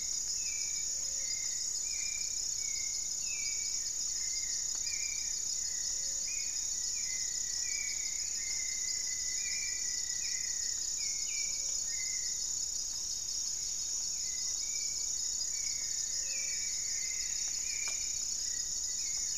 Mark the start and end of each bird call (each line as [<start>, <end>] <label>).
[0.00, 1.95] unidentified bird
[0.00, 6.55] Gray-fronted Dove (Leptotila rufaxilla)
[0.00, 19.37] Hauxwell's Thrush (Turdus hauxwelli)
[3.45, 9.05] Goeldi's Antbird (Akletos goeldii)
[6.65, 10.85] Rufous-fronted Antthrush (Formicarius rufifrons)
[11.35, 16.75] Gray-fronted Dove (Leptotila rufaxilla)
[12.75, 14.85] Black-tailed Trogon (Trogon melanurus)
[15.05, 19.37] Goeldi's Antbird (Akletos goeldii)
[15.45, 17.85] Thrush-like Wren (Campylorhynchus turdinus)
[15.65, 18.35] Plumbeous Antbird (Myrmelastes hyperythrus)